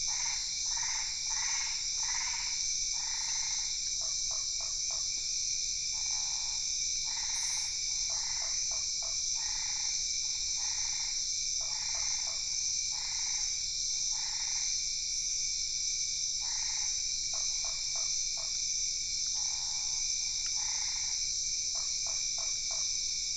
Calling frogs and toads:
Boana albopunctata, Usina tree frog
Brazil, 8:00pm

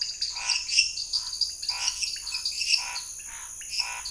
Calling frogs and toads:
lesser tree frog, dwarf tree frog, pointedbelly frog, Scinax fuscovarius
Brazil, 7:30pm

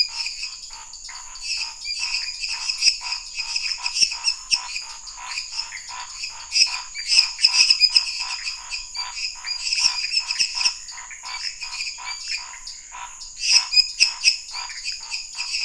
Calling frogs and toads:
lesser tree frog, Scinax fuscovarius
Brazil, 10:15pm

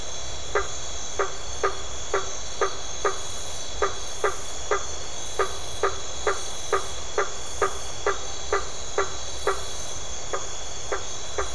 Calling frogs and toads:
blacksmith tree frog
Brazil, 7:30pm

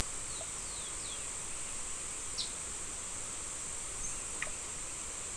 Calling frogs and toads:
none
Brazil, 5:45pm

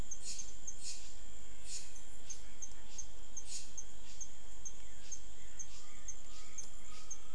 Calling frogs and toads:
Adenomera diptyx
Brazil, 6:00pm

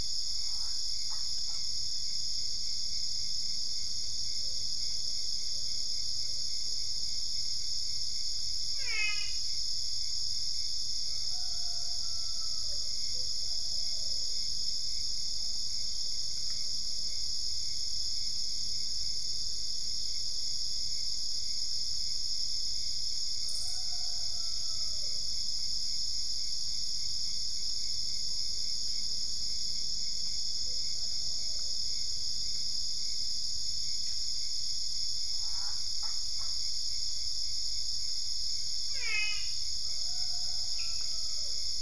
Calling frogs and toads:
brown-spotted dwarf frog
Brazil, 4:30am

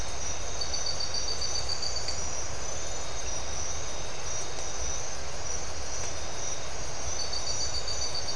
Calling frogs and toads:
none
Brazil, 3:00am

